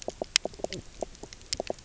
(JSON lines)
{"label": "biophony, knock croak", "recorder": "SoundTrap 300"}